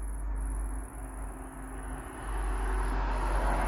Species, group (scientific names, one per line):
Tettigonia viridissima
Orthoptera